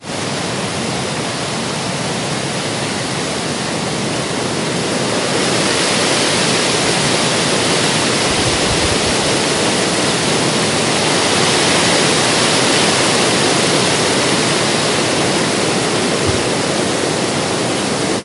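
0.0s Rustling leaves in a forest gradually increase in volume. 18.2s

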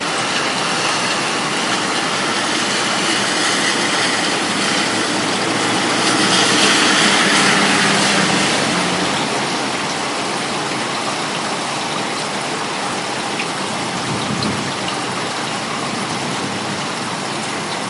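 0.0s Heavy, forceful rain continuously impacts the surface. 3.3s
3.2s Road noise from a moving car, including splashing and tire friction. 10.0s
9.9s Continuous sound of water flowing on a rainy day outdoors in an urban environment. 17.9s
9.9s Quiet ambient rain sounds with a consistent and soothing pattern. 17.9s
9.9s Water flowing continuously. 17.9s
14.1s Distant thunder rumbles faintly. 15.0s
16.3s Distant thunder rumbling faintly. 17.4s

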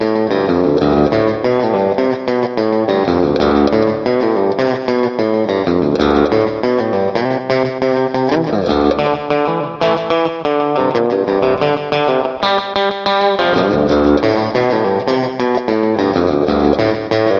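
0.0s Someone is playing guitar with rhythmic sounds. 17.4s

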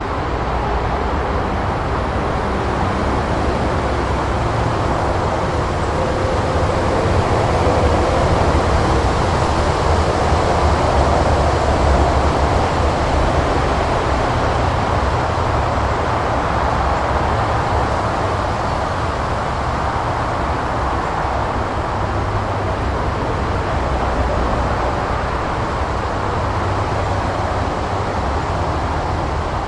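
0.0s Constant, loud, and almost monotone hum of trucks and cars passing on a motorway, with faint bird chirping in the distance. 29.7s

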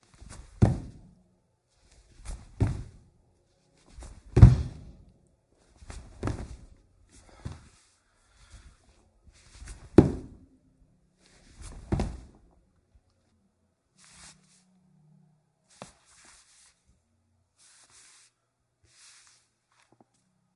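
0.4s Someone jumping rhythmically on wooden stairs, creating a hollow knocking noise. 1.1s
2.3s Someone jumping rhythmically on wooden stairs, creating a hollow knocking noise. 3.1s
4.2s Someone jumping rhythmically on wooden stairs, creating a hollow knocking noise. 5.0s
6.1s Someone jumping rhythmically on wooden stairs, creating a hollow knocking noise. 6.6s
9.8s Someone jumping rhythmically on wooden stairs, creating a hollow knocking noise. 10.4s
11.7s Rhythmic sounds of someone jumping on wooden stairs, creating a hollow knocking noise. 12.2s

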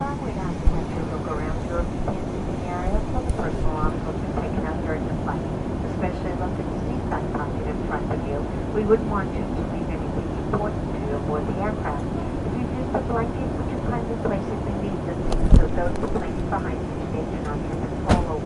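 0.0s An airplane humming steadily. 18.5s
0.0s Muffled announcement in the background. 18.5s

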